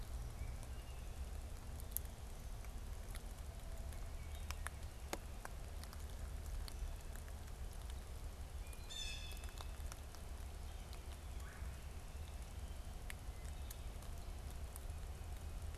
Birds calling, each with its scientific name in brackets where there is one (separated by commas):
Blue Jay (Cyanocitta cristata), Red-bellied Woodpecker (Melanerpes carolinus)